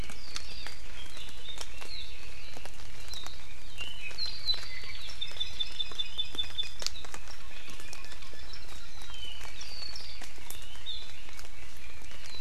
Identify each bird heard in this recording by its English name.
Red-billed Leiothrix, Apapane, Iiwi